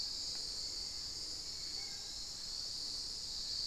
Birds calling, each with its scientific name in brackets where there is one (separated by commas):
unidentified bird, Spot-winged Antshrike (Pygiptila stellaris)